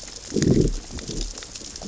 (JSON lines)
{"label": "biophony, growl", "recorder": "SoundTrap 600 or HydroMoth"}